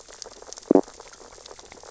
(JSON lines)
{"label": "biophony, stridulation", "recorder": "SoundTrap 600 or HydroMoth"}
{"label": "biophony, sea urchins (Echinidae)", "recorder": "SoundTrap 600 or HydroMoth"}